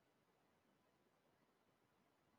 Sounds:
Throat clearing